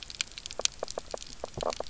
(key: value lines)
label: biophony, knock croak
recorder: SoundTrap 300